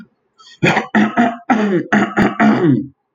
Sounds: Throat clearing